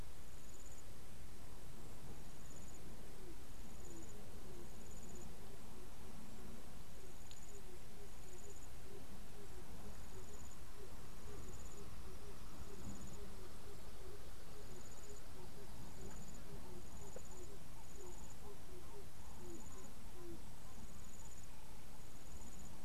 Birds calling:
Ring-necked Dove (Streptopelia capicola)

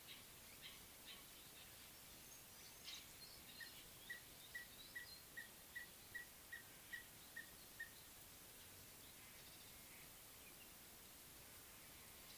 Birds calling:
Red-fronted Tinkerbird (Pogoniulus pusillus)

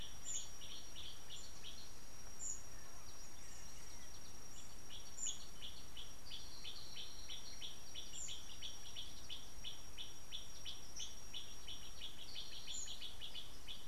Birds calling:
Gray Apalis (Apalis cinerea)

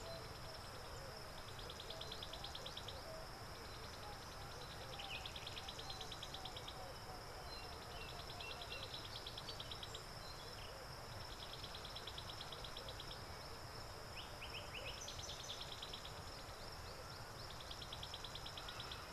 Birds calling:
African Bare-eyed Thrush (Turdus tephronotus)

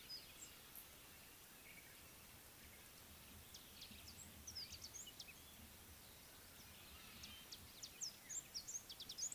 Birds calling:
Amethyst Sunbird (Chalcomitra amethystina)

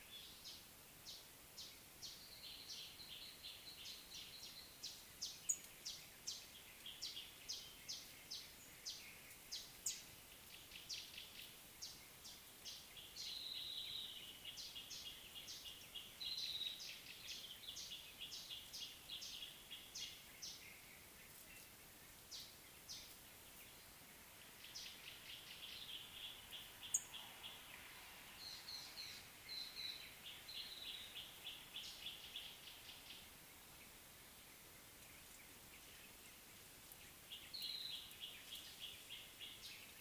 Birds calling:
Northern Double-collared Sunbird (Cinnyris reichenowi), Gray Apalis (Apalis cinerea)

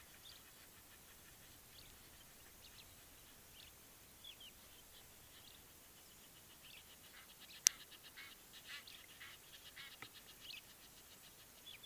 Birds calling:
Egyptian Goose (Alopochen aegyptiaca)

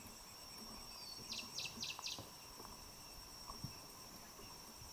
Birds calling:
Cinnamon Bracken-Warbler (Bradypterus cinnamomeus)

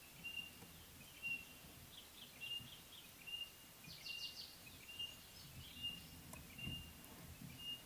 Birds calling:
White-browed Robin-Chat (Cossypha heuglini)

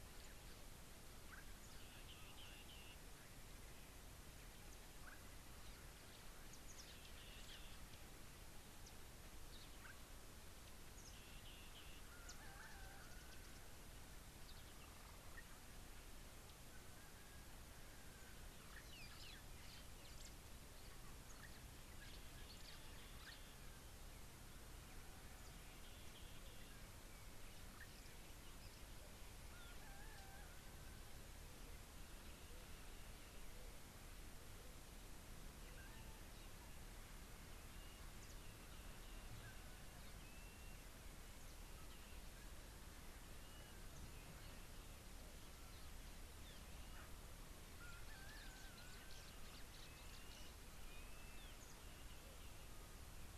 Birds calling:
Somali Tit (Melaniparus thruppi), White-headed Buffalo-Weaver (Dinemellia dinemelli)

